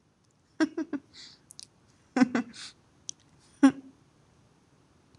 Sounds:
Laughter